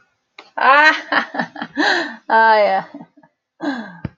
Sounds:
Laughter